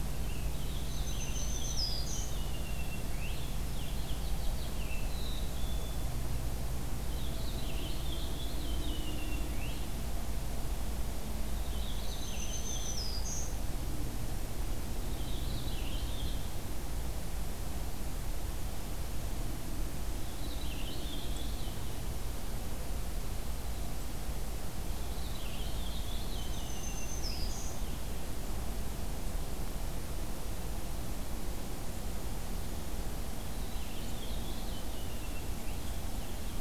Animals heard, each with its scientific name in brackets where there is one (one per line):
Black-capped Chickadee (Poecile atricapillus)
Black-throated Green Warbler (Setophaga virens)
Purple Finch (Haemorhous purpureus)